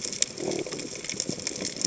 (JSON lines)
{"label": "biophony", "recorder": "HydroMoth"}